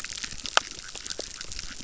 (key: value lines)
label: biophony, chorus
recorder: SoundTrap 600